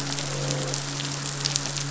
{"label": "biophony, midshipman", "recorder": "SoundTrap 500"}
{"label": "biophony, croak", "recorder": "SoundTrap 500"}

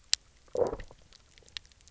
{"label": "biophony, low growl", "recorder": "SoundTrap 300"}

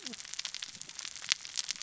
{"label": "biophony, cascading saw", "recorder": "SoundTrap 600 or HydroMoth"}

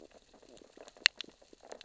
{"label": "biophony, sea urchins (Echinidae)", "recorder": "SoundTrap 600 or HydroMoth"}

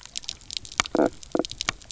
{"label": "biophony, knock croak", "recorder": "SoundTrap 300"}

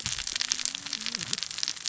{"label": "biophony, cascading saw", "recorder": "SoundTrap 600 or HydroMoth"}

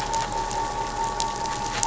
{"label": "anthrophony, boat engine", "recorder": "SoundTrap 500"}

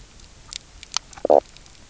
{"label": "biophony, knock croak", "recorder": "SoundTrap 300"}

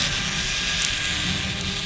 {"label": "anthrophony, boat engine", "recorder": "SoundTrap 500"}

